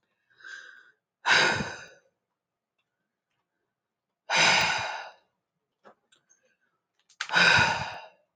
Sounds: Sigh